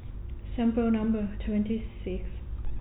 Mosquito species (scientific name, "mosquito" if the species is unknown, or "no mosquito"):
no mosquito